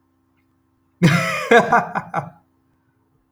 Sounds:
Laughter